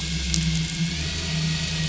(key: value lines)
label: anthrophony, boat engine
recorder: SoundTrap 500